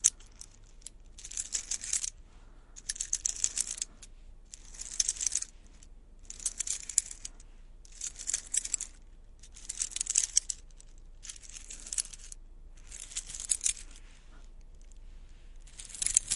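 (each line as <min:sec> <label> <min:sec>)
0:00.0 A wooden bracelet is clattering. 0:14.0
0:00.0 A quiet humming noise. 0:16.4
0:14.1 A person is breathing softly. 0:14.7
0:15.6 A wooden bracelet is clattering. 0:16.4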